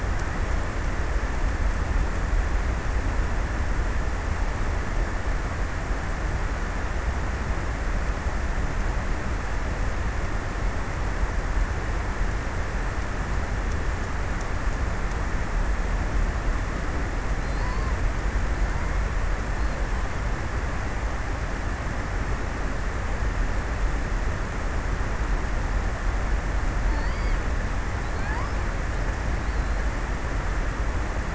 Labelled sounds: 26.5	29.2	killer whale, offshore, 0.47 to 5.8 kHz

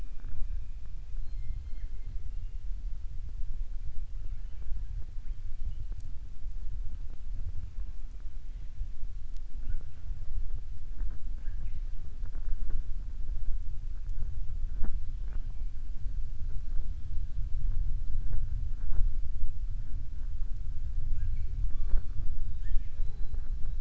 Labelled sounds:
11.3	11.9	killer whale, southern resident, 0.92 to 3.9 kHz

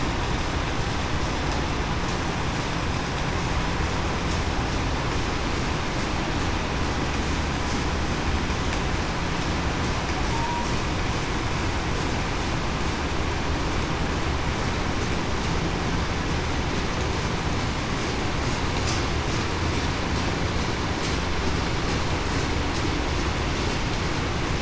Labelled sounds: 10.3	10.7	humpback whale, 0.87 to 0.98 kHz

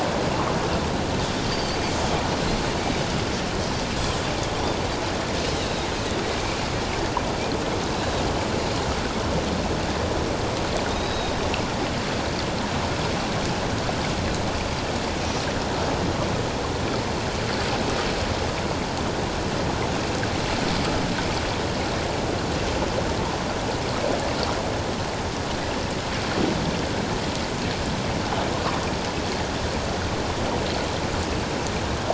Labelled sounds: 1.5	1.8	Pacific white-sided dolphin, 4.3 to 4.8 kHz
5.5	5.9	Pacific white-sided dolphin, 3.6 to 4.0 kHz
7.9	8.2	Pacific white-sided dolphin, 3.7 to 4.1 kHz
10.9	11.4	Pacific white-sided dolphin, 3.6 to 4.0 kHz

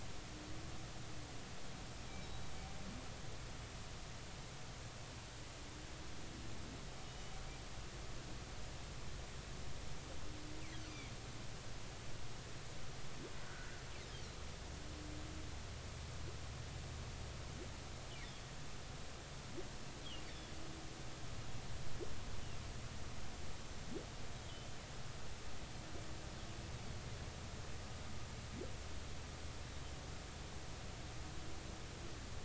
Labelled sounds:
2.2	2.5	humpback whale, 3.8 to 3.9 kHz
7.0	7.3	humpback whale, 2.9 to 3.0 kHz
13.4	13.7	humpback whale, 1.3 to 1.6 kHz
18.2	18.5	humpback whale, 3.2 to 3.7 kHz

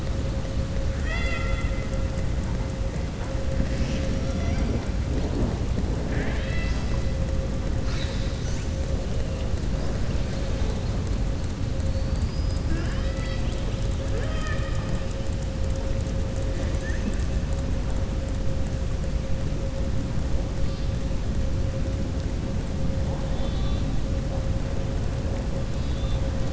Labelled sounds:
0.9	1.8	killer whale, southern resident, 0.68 to 7.5 kHz
6.0	7.0	killer whale, southern resident, 0.44 to 6.0 kHz
11.9	13.8	killer whale, southern resident, 0.67 to 5.3 kHz
16.5	17.1	killer whale, southern resident, 1.6 to 2.9 kHz
23.2	23.9	killer whale, southern resident, 2.7 to 4.7 kHz
25.6	26.2	killer whale, southern resident, 2.6 to 4.9 kHz

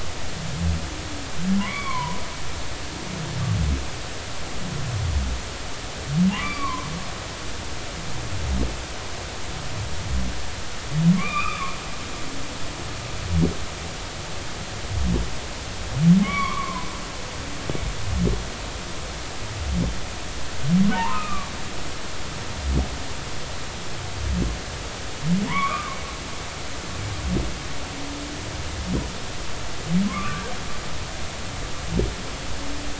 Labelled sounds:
1.6	2.2	humpback whale, 0.90 to 3.5 kHz
6.3	6.9	humpback whale, 0.80 to 4.7 kHz
11.1	11.7	humpback whale, 1.0 to 2.7 kHz
16.2	16.9	humpback whale, 0.93 to 2.4 kHz
20.9	21.5	humpback whale, 0.83 to 2.7 kHz
25.5	26.0	humpback whale, 0.90 to 2.5 kHz
30.1	30.5	humpback whale, 0.99 to 2.6 kHz

